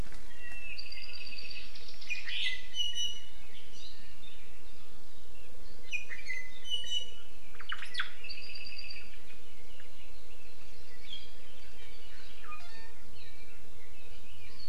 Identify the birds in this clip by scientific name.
Himatione sanguinea, Myadestes obscurus